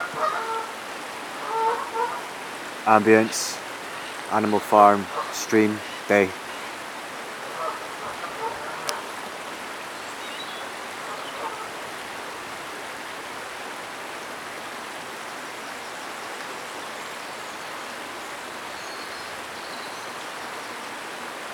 What gender is person speaking?
male